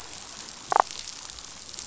{"label": "biophony, damselfish", "recorder": "SoundTrap 500"}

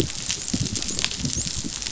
{"label": "biophony, dolphin", "recorder": "SoundTrap 500"}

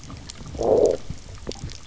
{"label": "biophony, low growl", "recorder": "SoundTrap 300"}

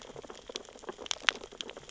{"label": "biophony, sea urchins (Echinidae)", "recorder": "SoundTrap 600 or HydroMoth"}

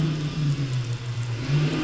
{"label": "anthrophony, boat engine", "recorder": "SoundTrap 500"}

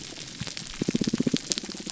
{"label": "biophony, pulse", "recorder": "SoundTrap 300"}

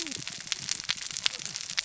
{"label": "biophony, cascading saw", "recorder": "SoundTrap 600 or HydroMoth"}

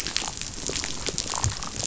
{"label": "biophony, damselfish", "recorder": "SoundTrap 500"}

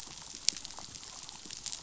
{"label": "biophony", "recorder": "SoundTrap 500"}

